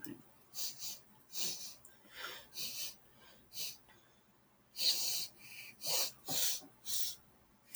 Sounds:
Sniff